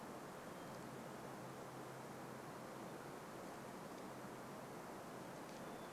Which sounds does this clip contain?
Hermit Thrush song